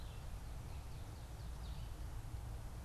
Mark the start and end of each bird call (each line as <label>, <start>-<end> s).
Red-eyed Vireo (Vireo olivaceus), 0.0-2.8 s